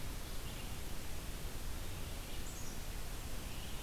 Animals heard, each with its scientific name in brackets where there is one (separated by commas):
Blue-headed Vireo (Vireo solitarius), Black-capped Chickadee (Poecile atricapillus)